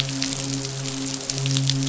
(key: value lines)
label: biophony, midshipman
recorder: SoundTrap 500